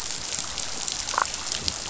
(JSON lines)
{"label": "biophony, damselfish", "recorder": "SoundTrap 500"}